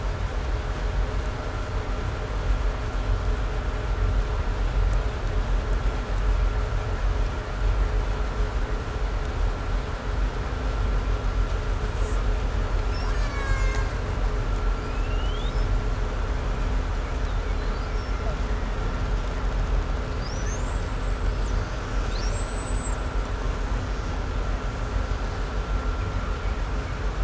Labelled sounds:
11.9	12.2	killer whale, 4.8 to 8.0 kHz
12.7	14.3	killer whale, Bigg's (transient), call T08, 0.63 to 8.0 kHz
14.6	16.2	killer whale, 1.9 to 8.0 kHz
17.0	19.1	killer whale, 1.6 to 5.9 kHz
20.0	21.6	killer whale, 1.4 to 8.0 kHz
21.8	23.2	killer whale, Bigg's (transient), call T15, 1.2 to 8.0 kHz

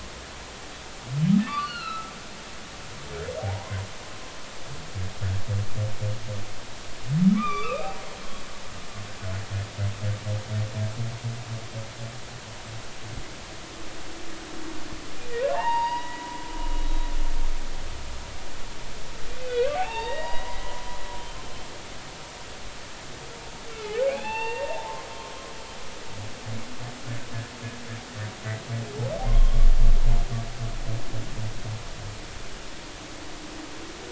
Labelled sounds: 1.5	2.1	humpback whale, 1.1 to 4.4 kHz
3.4	3.8	humpback whale, 0.80 to 1.1 kHz
7.4	7.9	humpback whale, 1.0 to 3.7 kHz
15.5	16.2	humpback whale, 0.80 to 4.8 kHz
16.8	17.1	humpback whale, 3.8 to 3.9 kHz
19.4	20.8	humpback whale, 0.80 to 3.8 kHz
23.7	25.1	humpback whale, 0.80 to 4.6 kHz
29.3	29.6	humpback whale, 0.99 to 3.3 kHz

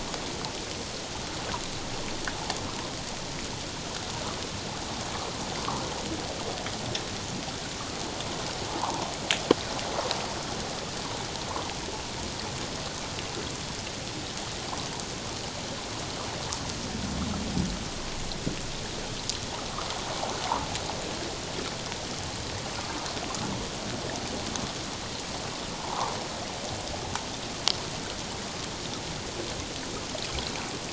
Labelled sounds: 8.7	9.1	water noise, 0.78 to 1.2 kHz
25.8	26.1	water noise, 0.78 to 1.3 kHz

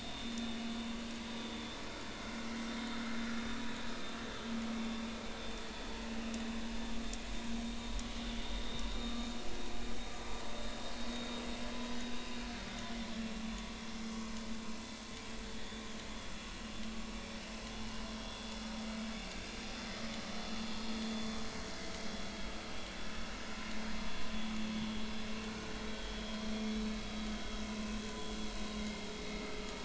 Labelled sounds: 0.1	0.6	vessel noise, 3.5 to 3.6 kHz
4.8	5.0	vessel noise, 3.5 to 3.6 kHz
9.0	9.3	vessel noise, 1.1 to 1.3 kHz
12.1	12.4	vessel noise, 2.5 to 2.9 kHz
13.4	13.7	vessel noise, 0.99 to 3.6 kHz
18.1	18.5	vessel noise, 3.2 to 3.5 kHz
21.1	21.4	vessel noise, 3.4 to 3.5 kHz
25.9	26.2	vessel noise, 3.2 to 3.3 kHz
27.0	27.3	vessel noise, 3.3 to 3.4 kHz
28.8	29.1	vessel noise, 2.0 to 2.2 kHz

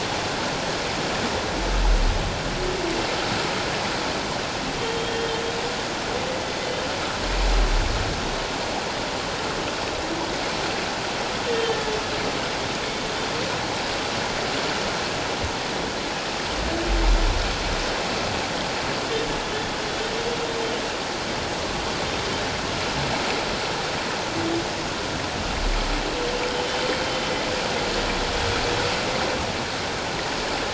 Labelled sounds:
5.1	5.4	humpback whale, 3.1 to 3.3 kHz

